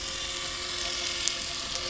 {"label": "anthrophony, boat engine", "recorder": "SoundTrap 300"}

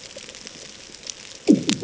{"label": "anthrophony, bomb", "recorder": "HydroMoth"}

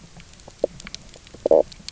{"label": "biophony, knock croak", "recorder": "SoundTrap 300"}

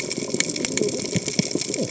{"label": "biophony, cascading saw", "recorder": "HydroMoth"}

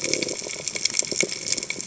{"label": "biophony", "recorder": "HydroMoth"}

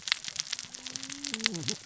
{"label": "biophony, cascading saw", "recorder": "SoundTrap 600 or HydroMoth"}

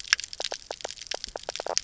{"label": "biophony, knock croak", "recorder": "SoundTrap 300"}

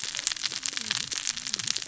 {"label": "biophony, cascading saw", "recorder": "SoundTrap 600 or HydroMoth"}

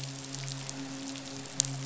{"label": "biophony, midshipman", "recorder": "SoundTrap 500"}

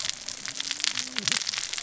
{"label": "biophony, cascading saw", "recorder": "SoundTrap 600 or HydroMoth"}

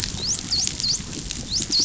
{"label": "biophony, dolphin", "recorder": "SoundTrap 500"}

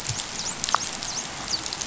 {"label": "biophony, dolphin", "recorder": "SoundTrap 500"}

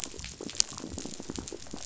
{"label": "biophony", "recorder": "SoundTrap 500"}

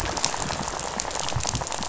{"label": "biophony, rattle", "recorder": "SoundTrap 500"}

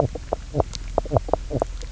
{"label": "biophony, knock croak", "recorder": "SoundTrap 300"}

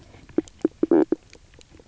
{"label": "biophony, knock croak", "recorder": "SoundTrap 300"}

